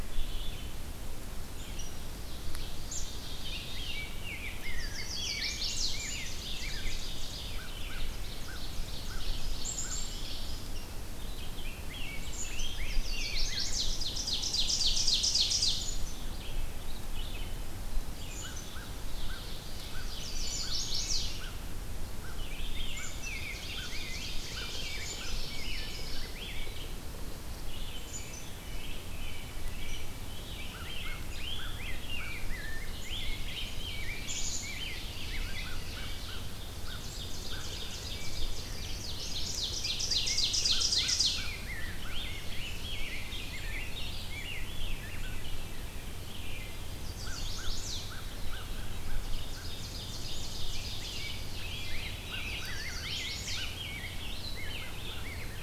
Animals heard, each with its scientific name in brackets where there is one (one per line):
Ovenbird (Seiurus aurocapilla)
Chestnut-sided Warbler (Setophaga pensylvanica)
Red-eyed Vireo (Vireo olivaceus)
American Robin (Turdus migratorius)
Rose-breasted Grosbeak (Pheucticus ludovicianus)
American Crow (Corvus brachyrhynchos)
Black-capped Chickadee (Poecile atricapillus)